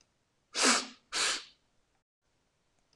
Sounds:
Sniff